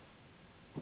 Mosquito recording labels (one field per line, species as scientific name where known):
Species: Anopheles gambiae s.s.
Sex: female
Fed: unfed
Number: one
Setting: insect culture